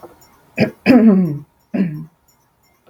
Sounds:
Throat clearing